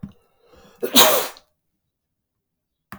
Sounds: Sneeze